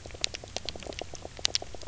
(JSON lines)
{"label": "biophony, knock croak", "recorder": "SoundTrap 300"}